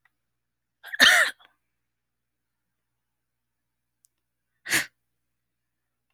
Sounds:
Sneeze